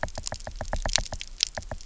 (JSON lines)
{"label": "biophony, knock", "recorder": "SoundTrap 300"}